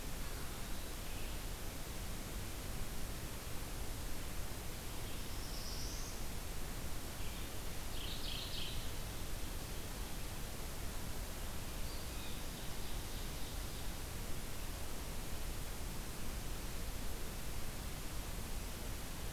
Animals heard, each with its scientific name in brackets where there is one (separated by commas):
Ovenbird (Seiurus aurocapilla), Mourning Warbler (Geothlypis philadelphia), Blue Jay (Cyanocitta cristata), Black-throated Blue Warbler (Setophaga caerulescens)